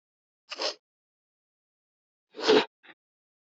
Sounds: Sniff